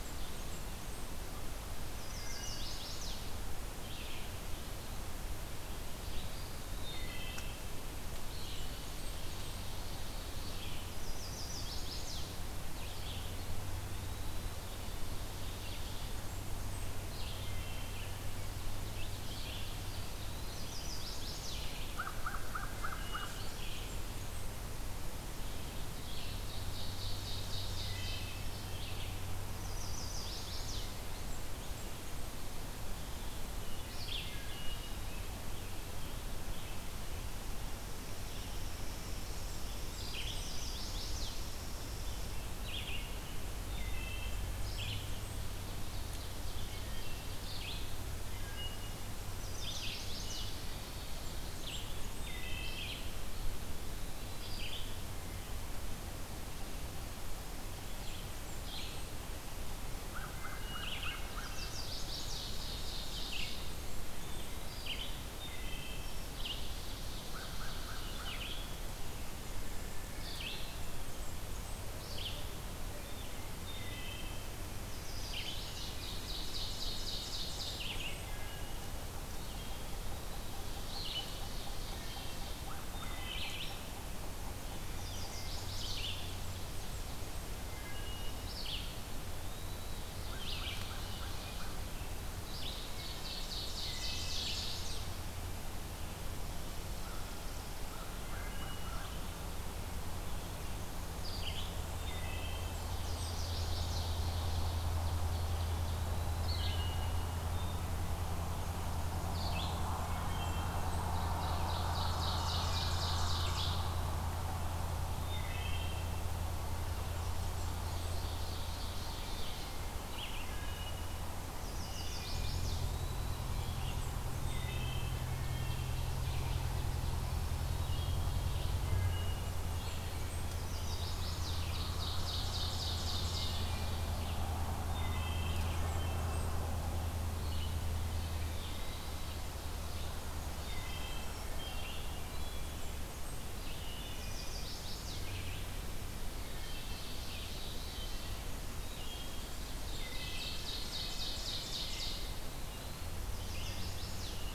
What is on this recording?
Blackburnian Warbler, Red-eyed Vireo, Chestnut-sided Warbler, Wood Thrush, Eastern Wood-Pewee, Ovenbird, American Crow, American Robin